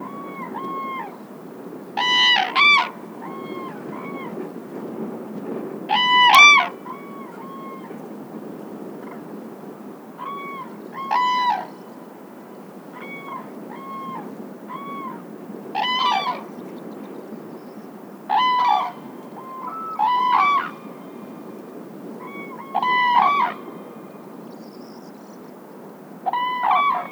Is this outside?
yes